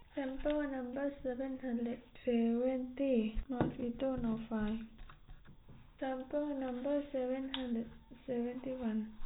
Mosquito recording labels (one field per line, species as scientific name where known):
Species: no mosquito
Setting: cup